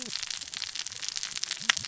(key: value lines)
label: biophony, cascading saw
recorder: SoundTrap 600 or HydroMoth